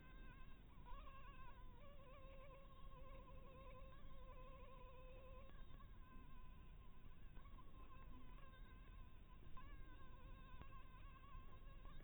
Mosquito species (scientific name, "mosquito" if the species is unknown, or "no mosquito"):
Anopheles maculatus